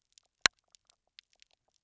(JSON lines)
{"label": "biophony, pulse", "recorder": "SoundTrap 300"}